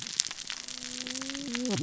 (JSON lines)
{"label": "biophony, cascading saw", "recorder": "SoundTrap 600 or HydroMoth"}